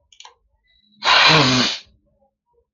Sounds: Sniff